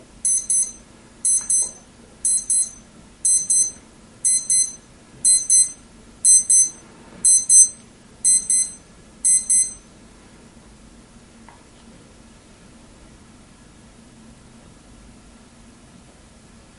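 An alarm beeps steadily. 0:00.0 - 0:09.6
An alarm is beeping. 0:07.0 - 0:07.9

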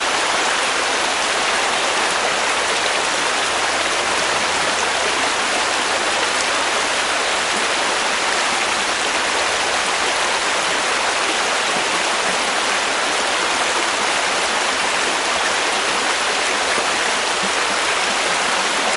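Splashing sounds of a stream nearby. 0:00.0 - 0:19.0

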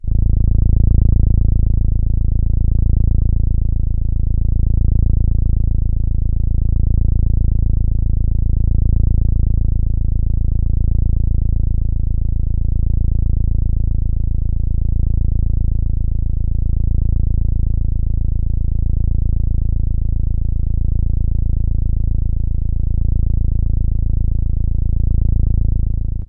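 A massage gun sounds repeatedly in the distance. 0:00.0 - 0:26.3

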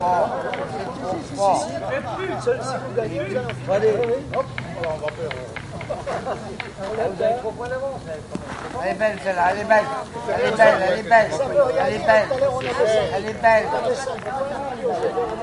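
Several people speaking French in the distance. 0:00.0 - 0:15.4
Soft, rhythmic clicking sounds in the distance. 0:03.5 - 0:07.1
A man is speaking in French in the distance. 0:09.1 - 0:13.8

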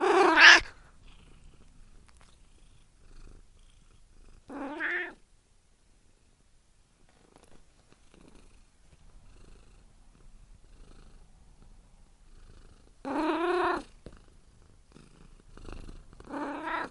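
A cat is meowing. 0:00.0 - 0:00.7
A cat meows in the distance. 0:04.4 - 0:05.3
A cat meows and purrs. 0:13.0 - 0:14.0
A cat is purring. 0:14.0 - 0:16.9
A cat meows softly. 0:16.3 - 0:16.9

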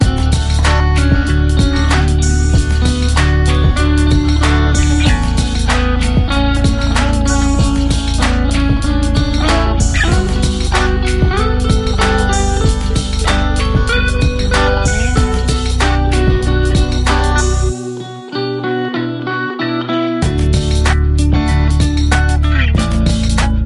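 An electric guitar plays softly in a steady pattern. 0:00.1 - 0:23.7
A drum is playing. 0:00.2 - 0:17.8
A drum is playing. 0:20.5 - 0:23.7

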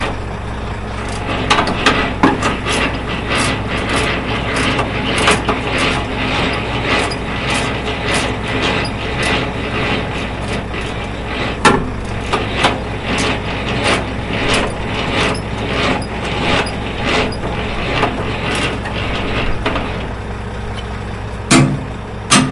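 An engine runs steadily with a clear noise. 0:00.0 - 0:01.3
Repeated whirring noise of hooking up a caravan to a truck. 0:01.4 - 0:21.3
A metallic object is struck repeatedly with a stable and gentle truck engine sound in the background. 0:21.4 - 0:22.5

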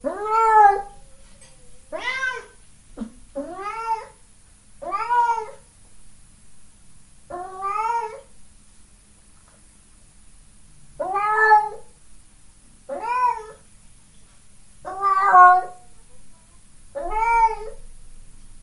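A cat meows in a room. 0:00.0 - 0:01.0
A cat meows three times in a room. 0:01.8 - 0:05.6
A cat meows in a room. 0:07.3 - 0:08.2
A cat meows twice in a room. 0:11.0 - 0:13.6
A cat meows in a room. 0:14.8 - 0:15.8
A cat meows in a room. 0:16.9 - 0:18.6

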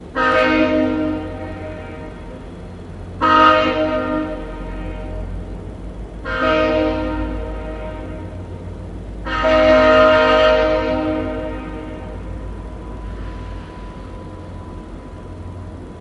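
A train horn blows loudly and repeatedly. 0:00.0 - 0:16.0

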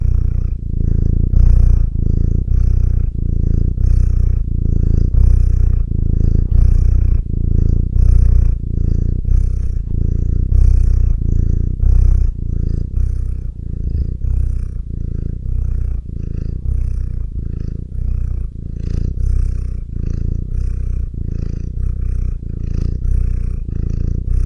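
A cat breathes heavily. 0:00.0 - 0:24.5

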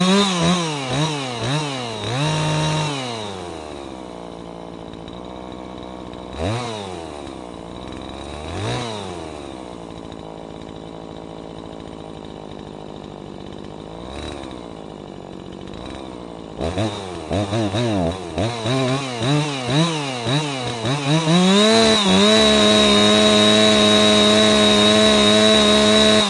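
A chainsaw engine roars loudly and repeatedly, gradually fading away. 0:00.0 - 0:04.0
A chainsaw engine roars steadily and quietly in the forest. 0:04.0 - 0:16.5
The loud, repeating, and fading thud of a chainsaw in the forest. 0:06.3 - 0:10.1
A chainsaw engine roars repeatedly and loudly, increasing in volume. 0:16.5 - 0:26.3

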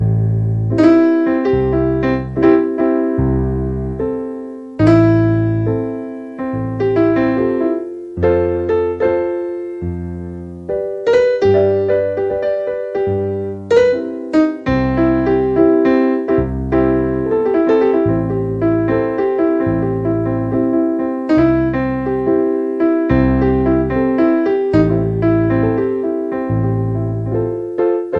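A slow melody is played on a piano. 0:00.0 - 0:28.2

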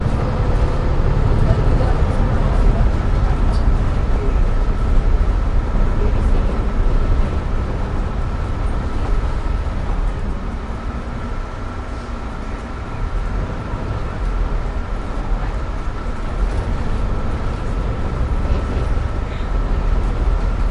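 Bus driving with people making noises. 0:00.2 - 0:08.2
A bus is driving. 0:08.4 - 0:20.7

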